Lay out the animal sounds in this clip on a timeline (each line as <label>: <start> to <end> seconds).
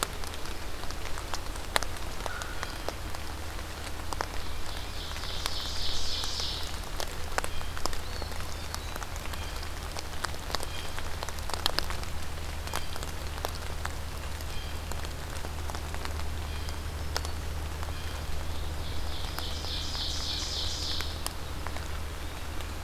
American Crow (Corvus brachyrhynchos): 1.9 to 3.0 seconds
Blue Jay (Cyanocitta cristata): 2.5 to 3.1 seconds
Ovenbird (Seiurus aurocapilla): 3.9 to 6.8 seconds
Blue Jay (Cyanocitta cristata): 7.2 to 11.2 seconds
Eastern Wood-Pewee (Contopus virens): 7.8 to 9.1 seconds
Blue Jay (Cyanocitta cristata): 12.5 to 18.4 seconds
Black-throated Green Warbler (Setophaga virens): 16.6 to 17.6 seconds
Ovenbird (Seiurus aurocapilla): 18.4 to 21.2 seconds
Eastern Wood-Pewee (Contopus virens): 21.6 to 22.5 seconds